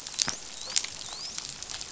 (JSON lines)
{"label": "biophony, dolphin", "recorder": "SoundTrap 500"}